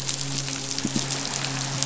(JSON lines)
{"label": "biophony, midshipman", "recorder": "SoundTrap 500"}